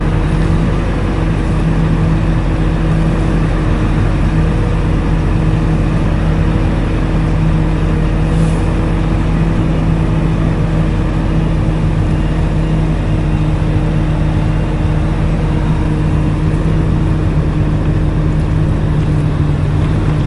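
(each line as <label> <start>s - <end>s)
A car engine hums powerfully and continuously. 0.0s - 20.3s
Rain drizzles softly and continuously. 0.0s - 20.3s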